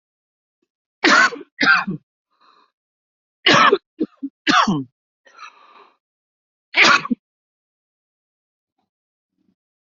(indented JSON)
{
  "expert_labels": [
    {
      "quality": "good",
      "cough_type": "unknown",
      "dyspnea": false,
      "wheezing": false,
      "stridor": false,
      "choking": false,
      "congestion": false,
      "nothing": true,
      "diagnosis": "upper respiratory tract infection",
      "severity": "severe"
    }
  ],
  "age": 39,
  "gender": "male",
  "respiratory_condition": true,
  "fever_muscle_pain": false,
  "status": "symptomatic"
}